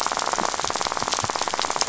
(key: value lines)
label: biophony, rattle
recorder: SoundTrap 500